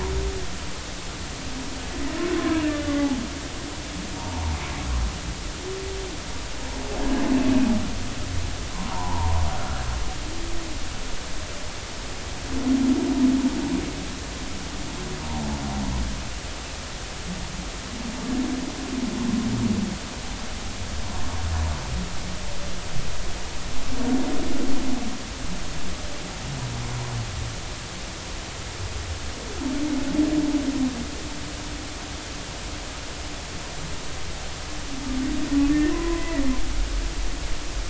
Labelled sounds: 2.4	3.1	humpback whale, 0.96 to 2.1 kHz
4.2	4.5	humpback whale, 0.83 to 1.1 kHz
8.9	9.4	humpback whale, 0.80 to 1.1 kHz
35.7	36.4	humpback whale, 0.93 to 2.0 kHz

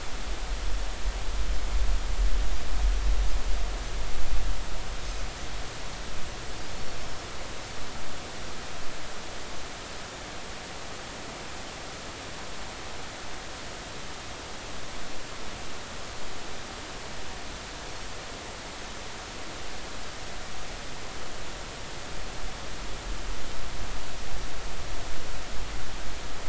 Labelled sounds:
7.0	7.3	Pacific white-sided dolphin, 5.2 to 5.4 kHz

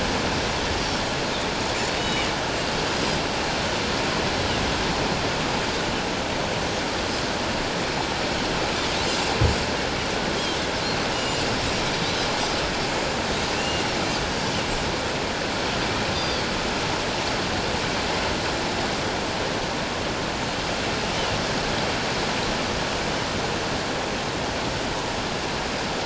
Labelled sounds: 2.0	2.3	Pacific white-sided dolphin, 2.8 to 3.8 kHz
11.1	11.4	Pacific white-sided dolphin, 2.8 to 7.3 kHz
12.0	12.3	Pacific white-sided dolphin, 3.6 to 4.1 kHz
12.9	13.2	Pacific white-sided dolphin, 6.9 to 7.2 kHz
13.5	13.8	Pacific white-sided dolphin, 2.6 to 2.9 kHz
16.1	16.5	Pacific white-sided dolphin, 4.2 to 4.8 kHz

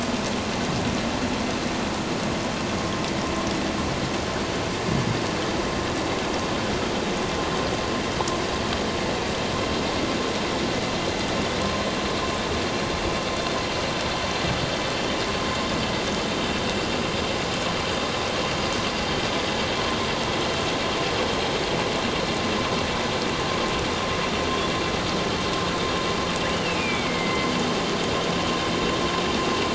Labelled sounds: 26.5	27.6	killer whale, northern resident, A clan, AA subclan, call N04, 2.0 to 3.0 kHz

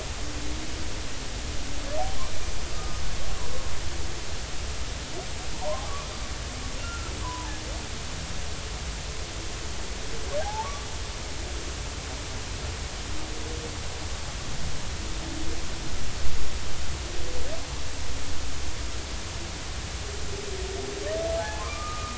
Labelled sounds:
2.7	3.0	humpback whale, 1.2 to 1.3 kHz
5.5	5.8	humpback whale, 0.86 to 1.1 kHz
6.8	7.6	humpback whale, 0.83 to 1.4 kHz
10.4	10.9	humpback whale, 0.80 to 1.2 kHz
21.4	22.1	humpback whale, 0.80 to 1.3 kHz

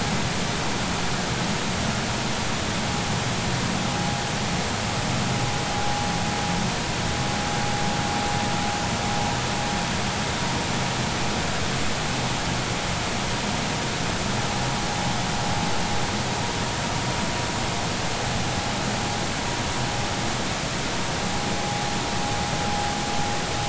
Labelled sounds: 21.6	21.8	vessel noise, 0.80 to 0.90 kHz

